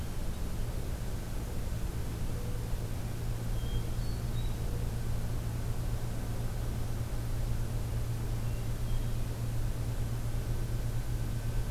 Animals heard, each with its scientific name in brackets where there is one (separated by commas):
Mourning Dove (Zenaida macroura), Hermit Thrush (Catharus guttatus)